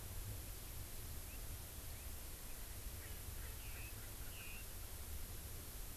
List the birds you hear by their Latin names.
Pternistis erckelii, Garrulax canorus